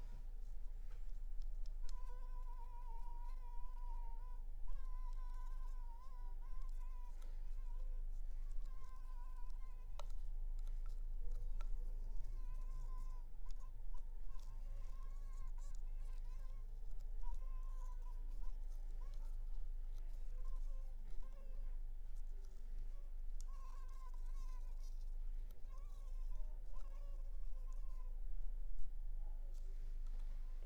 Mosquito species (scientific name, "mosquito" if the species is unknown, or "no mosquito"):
Anopheles maculipalpis